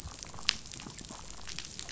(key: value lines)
label: biophony, damselfish
recorder: SoundTrap 500